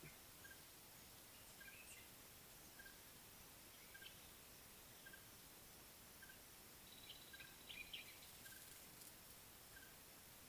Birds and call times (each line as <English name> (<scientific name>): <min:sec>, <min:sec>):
Red-fronted Tinkerbird (Pogoniulus pusillus): 0:02.7
African Thrush (Turdus pelios): 0:07.4